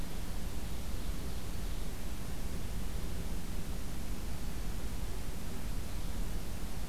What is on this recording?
Ovenbird